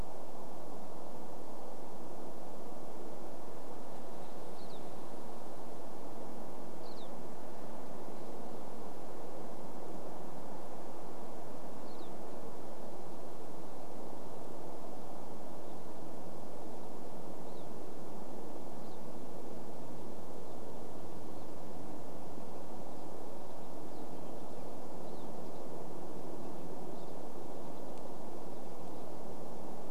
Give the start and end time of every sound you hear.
[4, 8] Pine Siskin call
[10, 14] Pine Siskin call
[16, 20] Pine Siskin call
[22, 28] Pine Siskin call

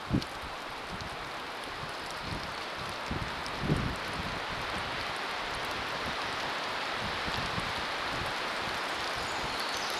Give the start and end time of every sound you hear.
[0, 10] rain
[8, 10] Pacific Wren song

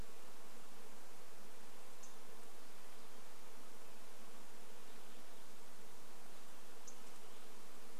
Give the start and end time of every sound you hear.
[0, 8] insect buzz
[2, 4] unidentified bird chip note
[6, 8] unidentified bird chip note

